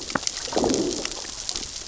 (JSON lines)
{"label": "biophony, growl", "recorder": "SoundTrap 600 or HydroMoth"}